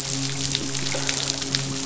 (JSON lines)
{"label": "biophony, midshipman", "recorder": "SoundTrap 500"}